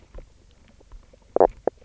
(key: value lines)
label: biophony, knock croak
recorder: SoundTrap 300